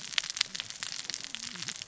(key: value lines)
label: biophony, cascading saw
recorder: SoundTrap 600 or HydroMoth